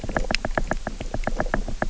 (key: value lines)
label: biophony, knock
recorder: SoundTrap 300